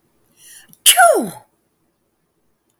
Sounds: Sneeze